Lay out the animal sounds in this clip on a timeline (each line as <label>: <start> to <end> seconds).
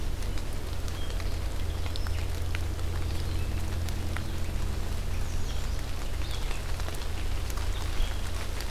Red-eyed Vireo (Vireo olivaceus): 0.0 to 8.7 seconds
American Redstart (Setophaga ruticilla): 5.0 to 5.8 seconds